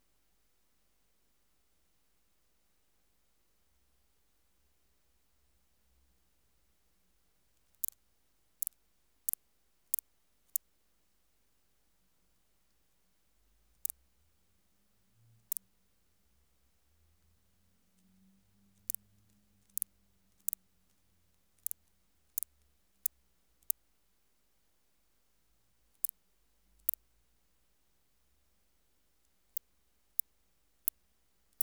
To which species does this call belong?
Tylopsis lilifolia